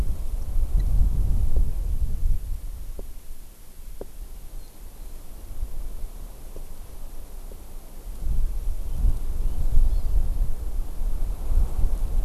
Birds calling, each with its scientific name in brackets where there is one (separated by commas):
Hawaii Amakihi (Chlorodrepanis virens)